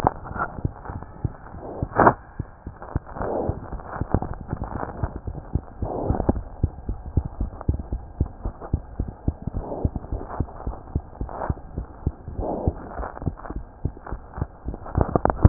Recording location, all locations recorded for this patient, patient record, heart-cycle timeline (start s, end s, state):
mitral valve (MV)
aortic valve (AV)+pulmonary valve (PV)+tricuspid valve (TV)+mitral valve (MV)
#Age: Child
#Sex: Male
#Height: 93.0 cm
#Weight: 10.4 kg
#Pregnancy status: False
#Murmur: Absent
#Murmur locations: nan
#Most audible location: nan
#Systolic murmur timing: nan
#Systolic murmur shape: nan
#Systolic murmur grading: nan
#Systolic murmur pitch: nan
#Systolic murmur quality: nan
#Diastolic murmur timing: nan
#Diastolic murmur shape: nan
#Diastolic murmur grading: nan
#Diastolic murmur pitch: nan
#Diastolic murmur quality: nan
#Outcome: Normal
#Campaign: 2015 screening campaign
0.00	6.87	unannotated
6.87	6.98	S1
6.98	7.16	systole
7.16	7.26	S2
7.26	7.40	diastole
7.40	7.50	S1
7.50	7.68	systole
7.68	7.75	S2
7.75	7.90	diastole
7.90	8.00	S1
8.00	8.18	systole
8.18	8.26	S2
8.26	8.43	diastole
8.43	8.54	S1
8.54	8.71	systole
8.71	8.82	S2
8.82	8.97	diastole
8.97	9.07	S1
9.07	9.26	systole
9.26	9.36	S2
9.36	9.55	diastole
9.55	9.64	S1
9.64	9.83	systole
9.83	9.90	S2
9.90	10.10	diastole
10.10	10.18	S1
10.18	10.38	systole
10.38	10.44	S2
10.44	10.65	diastole
10.65	10.76	S1
10.76	10.94	systole
10.94	11.02	S2
11.02	11.19	diastole
11.19	11.27	S1
11.27	11.48	systole
11.48	11.56	S2
11.56	11.76	diastole
11.76	11.84	S1
11.84	12.04	systole
12.04	12.14	S2
12.14	12.36	diastole
12.36	12.44	S1
12.44	12.65	systole
12.65	12.76	S2
12.76	12.97	diastole
12.97	13.05	S1
13.05	15.49	unannotated